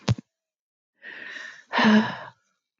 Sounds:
Sigh